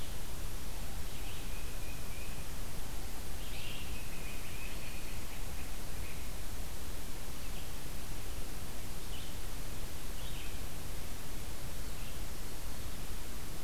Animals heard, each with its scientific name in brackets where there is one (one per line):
Black-throated Green Warbler (Setophaga virens)
Tufted Titmouse (Baeolophus bicolor)
Red-eyed Vireo (Vireo olivaceus)